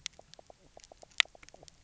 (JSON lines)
{"label": "biophony, knock croak", "recorder": "SoundTrap 300"}